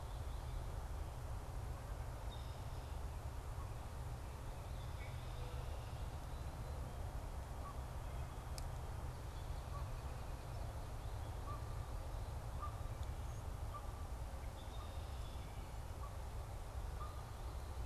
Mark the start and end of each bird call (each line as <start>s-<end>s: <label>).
2.2s-3.3s: Red-winged Blackbird (Agelaius phoeniceus)
4.8s-6.1s: Red-winged Blackbird (Agelaius phoeniceus)
7.6s-17.9s: Canada Goose (Branta canadensis)
14.4s-15.4s: Red-winged Blackbird (Agelaius phoeniceus)